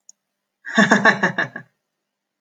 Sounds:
Laughter